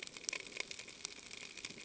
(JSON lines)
{"label": "ambient", "recorder": "HydroMoth"}